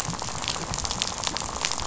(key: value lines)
label: biophony, rattle
recorder: SoundTrap 500